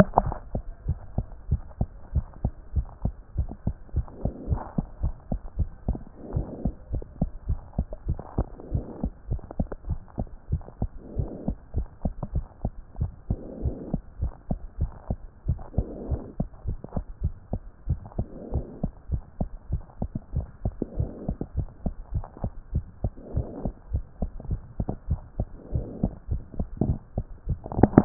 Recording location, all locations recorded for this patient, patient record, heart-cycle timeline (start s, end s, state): mitral valve (MV)
aortic valve (AV)+pulmonary valve (PV)+tricuspid valve (TV)+mitral valve (MV)
#Age: Child
#Sex: Female
#Height: 136.0 cm
#Weight: 18.7 kg
#Pregnancy status: False
#Murmur: Absent
#Murmur locations: nan
#Most audible location: nan
#Systolic murmur timing: nan
#Systolic murmur shape: nan
#Systolic murmur grading: nan
#Systolic murmur pitch: nan
#Systolic murmur quality: nan
#Diastolic murmur timing: nan
#Diastolic murmur shape: nan
#Diastolic murmur grading: nan
#Diastolic murmur pitch: nan
#Diastolic murmur quality: nan
#Outcome: Abnormal
#Campaign: 2014 screening campaign
0.00	0.74	unannotated
0.74	0.86	diastole
0.86	0.98	S1
0.98	1.16	systole
1.16	1.26	S2
1.26	1.48	diastole
1.48	1.62	S1
1.62	1.78	systole
1.78	1.88	S2
1.88	2.14	diastole
2.14	2.26	S1
2.26	2.42	systole
2.42	2.52	S2
2.52	2.74	diastole
2.74	2.86	S1
2.86	3.04	systole
3.04	3.14	S2
3.14	3.36	diastole
3.36	3.48	S1
3.48	3.66	systole
3.66	3.76	S2
3.76	3.94	diastole
3.94	4.06	S1
4.06	4.22	systole
4.22	4.32	S2
4.32	4.48	diastole
4.48	4.60	S1
4.60	4.76	systole
4.76	4.86	S2
4.86	5.02	diastole
5.02	5.14	S1
5.14	5.30	systole
5.30	5.40	S2
5.40	5.58	diastole
5.58	5.70	S1
5.70	5.86	systole
5.86	5.98	S2
5.98	6.34	diastole
6.34	6.46	S1
6.46	6.64	systole
6.64	6.74	S2
6.74	6.92	diastole
6.92	7.04	S1
7.04	7.20	systole
7.20	7.30	S2
7.30	7.48	diastole
7.48	7.60	S1
7.60	7.76	systole
7.76	7.86	S2
7.86	8.06	diastole
8.06	8.18	S1
8.18	8.36	systole
8.36	8.46	S2
8.46	8.72	diastole
8.72	8.84	S1
8.84	9.02	systole
9.02	9.12	S2
9.12	9.30	diastole
9.30	9.42	S1
9.42	9.58	systole
9.58	9.68	S2
9.68	9.88	diastole
9.88	10.00	S1
10.00	10.18	systole
10.18	10.28	S2
10.28	10.50	diastole
10.50	10.62	S1
10.62	10.80	systole
10.80	10.90	S2
10.90	11.16	diastole
11.16	11.30	S1
11.30	11.46	systole
11.46	11.56	S2
11.56	11.76	diastole
11.76	11.86	S1
11.86	12.04	systole
12.04	12.14	S2
12.14	12.34	diastole
12.34	12.44	S1
12.44	12.62	systole
12.62	12.72	S2
12.72	13.00	diastole
13.00	13.10	S1
13.10	13.28	systole
13.28	13.38	S2
13.38	13.62	diastole
13.62	13.76	S1
13.76	13.92	systole
13.92	14.02	S2
14.02	14.20	diastole
14.20	14.32	S1
14.32	14.50	systole
14.50	14.58	S2
14.58	14.80	diastole
14.80	14.90	S1
14.90	15.08	systole
15.08	15.18	S2
15.18	15.46	diastole
15.46	15.58	S1
15.58	15.76	systole
15.76	15.86	S2
15.86	16.10	diastole
16.10	16.22	S1
16.22	16.38	systole
16.38	16.48	S2
16.48	16.66	diastole
16.66	16.78	S1
16.78	16.94	systole
16.94	17.04	S2
17.04	17.22	diastole
17.22	17.34	S1
17.34	17.52	systole
17.52	17.60	S2
17.60	17.88	diastole
17.88	18.00	S1
18.00	18.18	systole
18.18	18.26	S2
18.26	18.52	diastole
18.52	18.66	S1
18.66	18.82	systole
18.82	18.92	S2
18.92	19.10	diastole
19.10	19.22	S1
19.22	19.40	systole
19.40	19.48	S2
19.48	19.70	diastole
19.70	19.82	S1
19.82	20.00	systole
20.00	20.10	S2
20.10	20.34	diastole
20.34	20.46	S1
20.46	20.64	systole
20.64	20.74	S2
20.74	20.98	diastole
20.98	21.10	S1
21.10	21.26	systole
21.26	21.36	S2
21.36	21.56	diastole
21.56	21.68	S1
21.68	21.84	systole
21.84	21.94	S2
21.94	22.14	diastole
22.14	22.24	S1
22.24	22.42	systole
22.42	22.52	S2
22.52	22.74	diastole
22.74	22.84	S1
22.84	23.02	systole
23.02	23.12	S2
23.12	23.34	diastole
23.34	23.46	S1
23.46	23.64	systole
23.64	23.74	S2
23.74	23.92	diastole
23.92	24.04	S1
24.04	24.20	systole
24.20	24.30	S2
24.30	24.50	diastole
24.50	24.60	S1
24.60	24.78	systole
24.78	24.86	S2
24.86	25.08	diastole
25.08	25.20	S1
25.20	25.38	systole
25.38	25.48	S2
25.48	25.74	diastole
25.74	25.86	S1
25.86	26.02	systole
26.02	26.14	S2
26.14	26.30	diastole
26.30	26.42	S1
26.42	26.58	systole
26.58	26.66	S2
26.66	26.82	diastole
26.82	26.96	S1
26.96	27.16	systole
27.16	27.26	S2
27.26	27.48	diastole
27.48	28.05	unannotated